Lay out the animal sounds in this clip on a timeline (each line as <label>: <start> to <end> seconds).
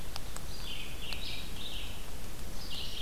Red-eyed Vireo (Vireo olivaceus): 0.0 to 3.0 seconds